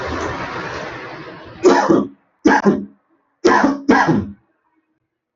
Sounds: Cough